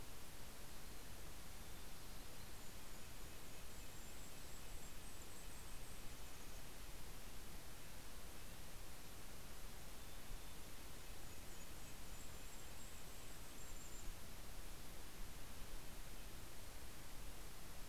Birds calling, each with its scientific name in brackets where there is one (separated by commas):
Golden-crowned Kinglet (Regulus satrapa), Red-breasted Nuthatch (Sitta canadensis), Mountain Chickadee (Poecile gambeli)